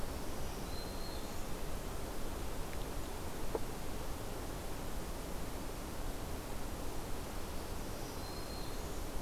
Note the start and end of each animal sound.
0.0s-1.5s: Black-throated Green Warbler (Setophaga virens)
7.4s-9.1s: Black-throated Green Warbler (Setophaga virens)

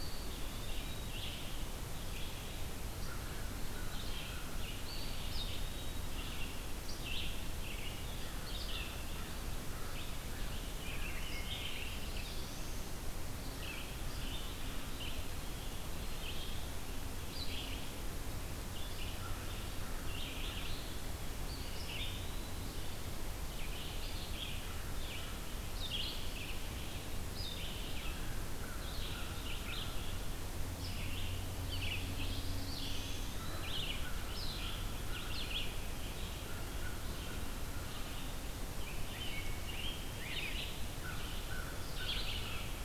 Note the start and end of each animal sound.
0.0s-1.5s: Eastern Wood-Pewee (Contopus virens)
0.0s-42.8s: Red-eyed Vireo (Vireo olivaceus)
2.9s-4.7s: American Crow (Corvus brachyrhynchos)
4.8s-6.1s: Eastern Wood-Pewee (Contopus virens)
11.6s-12.9s: Black-throated Blue Warbler (Setophaga caerulescens)
14.5s-15.6s: Eastern Wood-Pewee (Contopus virens)
21.4s-22.8s: Eastern Wood-Pewee (Contopus virens)
24.3s-25.6s: American Crow (Corvus brachyrhynchos)
27.9s-30.2s: American Crow (Corvus brachyrhynchos)
31.8s-33.6s: Black-throated Blue Warbler (Setophaga caerulescens)
32.5s-33.8s: Eastern Wood-Pewee (Contopus virens)
33.2s-35.6s: American Crow (Corvus brachyrhynchos)
36.2s-38.0s: American Crow (Corvus brachyrhynchos)
38.7s-40.8s: Rose-breasted Grosbeak (Pheucticus ludovicianus)
40.8s-42.7s: American Crow (Corvus brachyrhynchos)

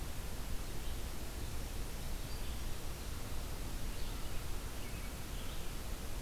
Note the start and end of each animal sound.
4.5s-5.6s: American Robin (Turdus migratorius)

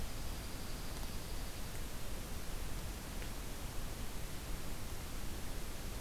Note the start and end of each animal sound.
0.0s-1.7s: Dark-eyed Junco (Junco hyemalis)

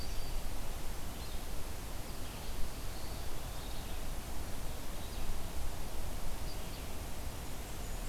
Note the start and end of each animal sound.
0.0s-0.9s: Yellow-rumped Warbler (Setophaga coronata)
0.0s-8.1s: Red-eyed Vireo (Vireo olivaceus)
2.5s-4.4s: Eastern Wood-Pewee (Contopus virens)
7.2s-8.1s: Blackburnian Warbler (Setophaga fusca)

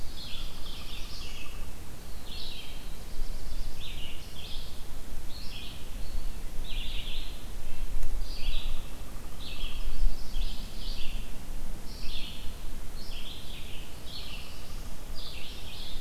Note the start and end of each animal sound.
0.0s-1.7s: Pileated Woodpecker (Dryocopus pileatus)
0.0s-1.4s: Black-throated Blue Warbler (Setophaga caerulescens)
0.1s-16.0s: Red-eyed Vireo (Vireo olivaceus)
2.9s-3.8s: Yellow-rumped Warbler (Setophaga coronata)
7.6s-8.0s: Red-breasted Nuthatch (Sitta canadensis)
8.4s-10.1s: Pileated Woodpecker (Dryocopus pileatus)
9.4s-10.8s: Chimney Swift (Chaetura pelagica)
14.0s-15.1s: Pileated Woodpecker (Dryocopus pileatus)
14.1s-15.2s: Black-throated Blue Warbler (Setophaga caerulescens)

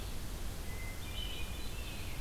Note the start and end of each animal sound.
0.6s-2.1s: Hermit Thrush (Catharus guttatus)

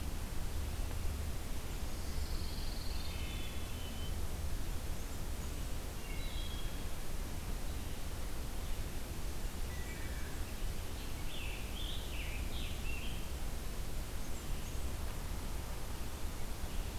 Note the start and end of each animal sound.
1.9s-3.4s: Pine Warbler (Setophaga pinus)
3.0s-4.1s: Wood Thrush (Hylocichla mustelina)
4.4s-5.7s: Blackburnian Warbler (Setophaga fusca)
5.6s-7.1s: Wood Thrush (Hylocichla mustelina)
9.3s-10.6s: Blackburnian Warbler (Setophaga fusca)
9.6s-10.5s: Wood Thrush (Hylocichla mustelina)
11.0s-13.5s: Scarlet Tanager (Piranga olivacea)
13.6s-15.0s: Blackburnian Warbler (Setophaga fusca)

